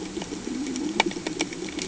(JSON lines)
{"label": "anthrophony, boat engine", "recorder": "HydroMoth"}